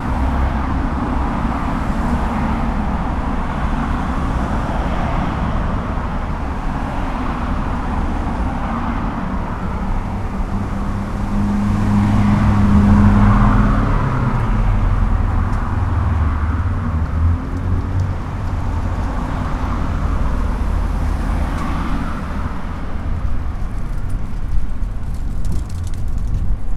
Is someone screaming?
no